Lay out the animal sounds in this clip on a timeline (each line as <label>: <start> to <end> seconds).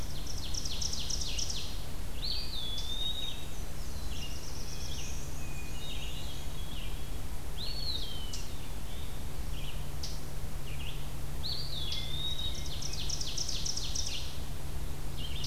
Ovenbird (Seiurus aurocapilla): 0.0 to 1.9 seconds
Red-eyed Vireo (Vireo olivaceus): 0.0 to 7.1 seconds
Eastern Wood-Pewee (Contopus virens): 2.1 to 3.6 seconds
Black-and-white Warbler (Mniotilta varia): 2.6 to 4.1 seconds
Black-throated Blue Warbler (Setophaga caerulescens): 4.0 to 5.4 seconds
Hermit Thrush (Catharus guttatus): 5.3 to 6.9 seconds
Eastern Wood-Pewee (Contopus virens): 7.4 to 9.0 seconds
Red-eyed Vireo (Vireo olivaceus): 8.6 to 11.2 seconds
Eastern Wood-Pewee (Contopus virens): 11.0 to 13.1 seconds
Hermit Thrush (Catharus guttatus): 11.9 to 13.2 seconds
Ovenbird (Seiurus aurocapilla): 12.0 to 14.6 seconds